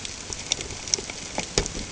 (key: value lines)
label: ambient
recorder: HydroMoth